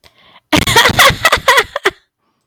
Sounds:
Laughter